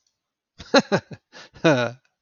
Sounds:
Laughter